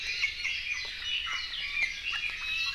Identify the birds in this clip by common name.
Iiwi